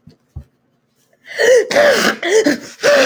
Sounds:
Sneeze